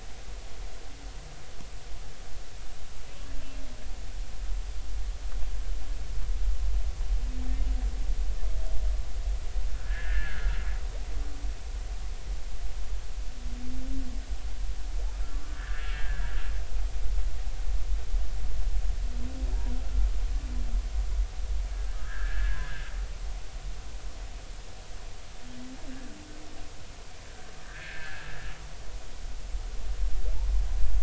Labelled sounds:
9.8	10.6	humpback whale, 1.3 to 1.9 kHz
15.4	16.3	humpback whale, 1.3 to 1.9 kHz
21.7	22.8	humpback whale, 1.2 to 1.8 kHz
27.6	28.3	humpback whale, 1.3 to 1.9 kHz

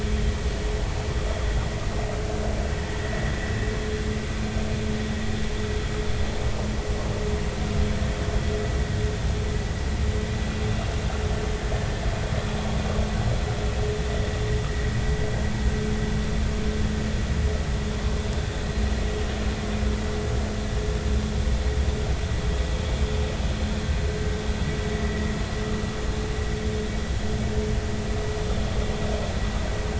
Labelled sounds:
3.0	3.3	vessel noise, 1.8 to 2.0 kHz

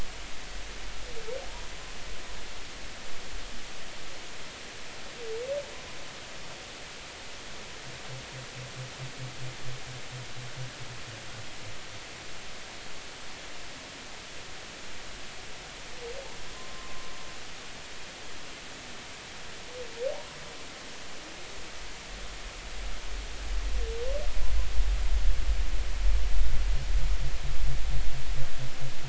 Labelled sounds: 16.5	17.1	humpback whale, 0.99 to 1.1 kHz

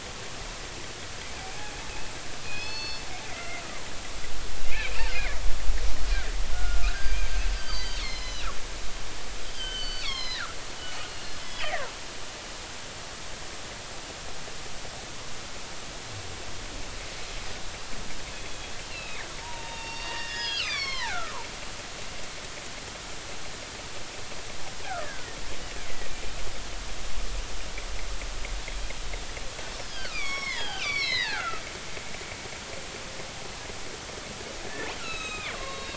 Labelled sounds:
1.4	3.0	killer whale, northern resident, G clan, 0.80 to 5.3 kHz
3.3	3.9	killer whale, northern resident, G clan, 0.90 to 2.2 kHz
4.7	5.4	killer whale, northern resident, G clan, 1.6 to 2.8 kHz
6.5	8.5	killer whale, northern resident, G clan, 1.2 to 6.5 kHz
9.5	11.9	killer whale, northern resident, G clan, 0.96 to 5.7 kHz
18.3	21.5	killer whale, northern resident, G clan, 0.80 to 6.4 kHz
25.0	26.1	killer whale, northern resident, G clan, 1.4 to 2.4 kHz
29.9	32.6	killer whale, northern resident, G clan, 0.80 to 6.0 kHz
34.6	35.9	killer whale, northern resident, G clan, 0.99 to 7.8 kHz

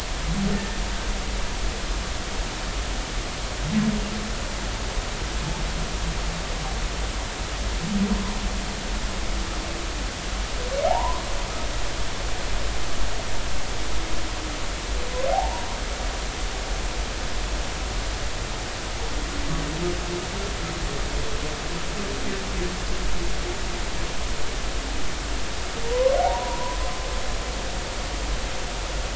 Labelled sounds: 10.9	11.2	humpback whale, 0.80 to 1.1 kHz
15.3	15.7	humpback whale, 0.80 to 1.0 kHz
25.8	26.8	humpback whale, 0.80 to 1.1 kHz

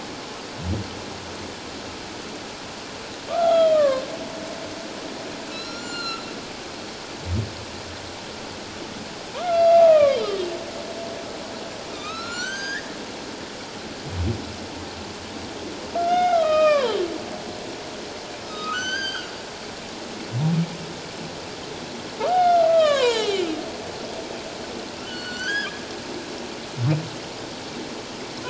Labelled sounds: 3.3	4.0	humpback whale, 1.0 to 3.5 kHz
5.5	6.3	humpback whale, 1.2 to 7.2 kHz
9.3	10.4	humpback whale, 0.91 to 4.8 kHz
11.8	12.9	humpback whale, 1.2 to 7.4 kHz
16.0	17.0	humpback whale, 0.84 to 5.1 kHz
18.4	19.3	humpback whale, 1.2 to 8.0 kHz
22.2	23.5	humpback whale, 0.81 to 4.3 kHz
25.0	25.7	humpback whale, 1.3 to 6.1 kHz

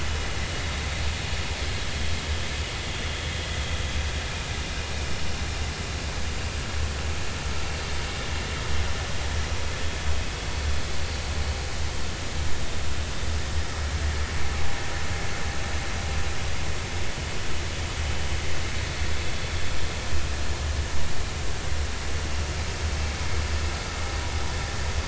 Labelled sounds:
10.5	10.7	vessel noise, 4.4 to 4.5 kHz

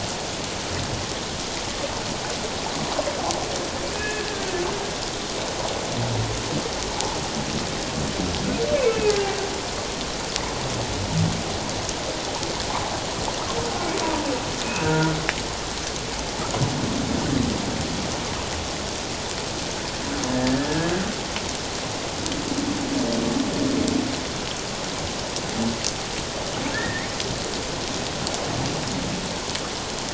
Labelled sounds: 3.9	4.5	humpback whale, 1.5 to 2.6 kHz
8.8	9.3	humpback whale, 1.5 to 2.7 kHz
14.6	15.1	humpback whale, 1.4 to 2.8 kHz
26.7	27.1	humpback whale, 1.6 to 2.2 kHz

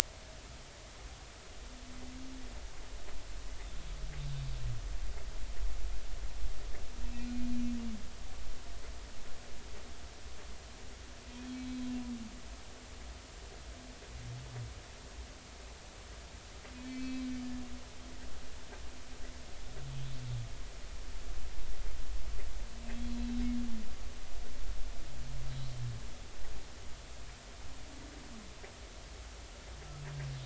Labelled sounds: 7.0	7.5	humpback whale, 2.4 to 2.7 kHz
11.6	11.9	humpback whale, 4.0 to 4.1 kHz
16.8	17.3	humpback whale, 2.2 to 4.4 kHz

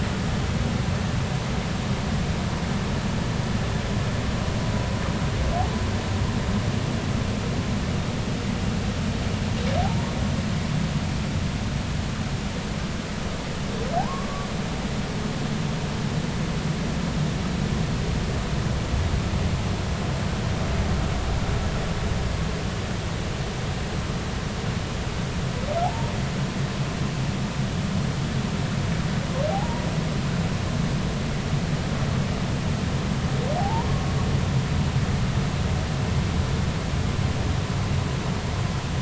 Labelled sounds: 14.0	14.5	humpback whale, 0.80 to 1.2 kHz
25.8	26.1	humpback whale, 0.80 to 0.99 kHz
29.5	29.8	humpback whale, 0.80 to 0.99 kHz
33.6	34.0	humpback whale, 0.80 to 1.2 kHz

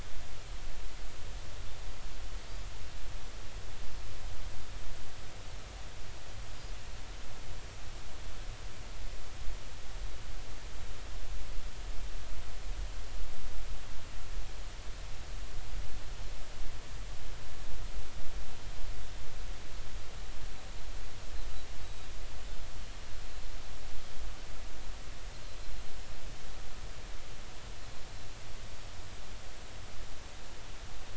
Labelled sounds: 21.8	22.1	Pacific white-sided dolphin, 3.8 to 3.9 kHz

